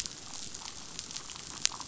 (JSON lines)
{"label": "biophony", "recorder": "SoundTrap 500"}